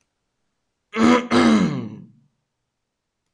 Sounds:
Throat clearing